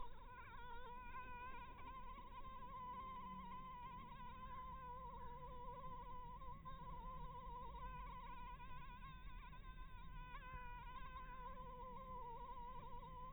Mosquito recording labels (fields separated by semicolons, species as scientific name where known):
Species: Anopheles dirus; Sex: female; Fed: blood-fed; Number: one; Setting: cup